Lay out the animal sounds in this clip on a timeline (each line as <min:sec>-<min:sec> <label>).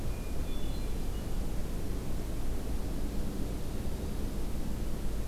0:00.0-0:01.6 Hermit Thrush (Catharus guttatus)